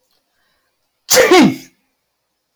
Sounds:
Sneeze